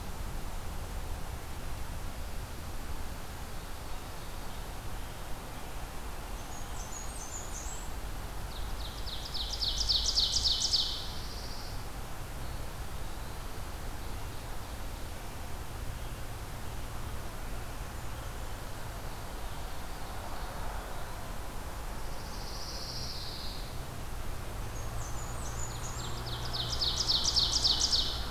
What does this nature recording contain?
Blackburnian Warbler, Ovenbird, Pine Warbler, Eastern Wood-Pewee